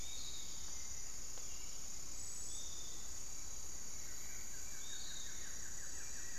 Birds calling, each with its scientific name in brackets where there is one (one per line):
Hauxwell's Thrush (Turdus hauxwelli)
Long-winged Antwren (Myrmotherula longipennis)
Piratic Flycatcher (Legatus leucophaius)
Buff-throated Woodcreeper (Xiphorhynchus guttatus)